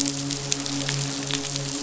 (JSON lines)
{"label": "biophony, midshipman", "recorder": "SoundTrap 500"}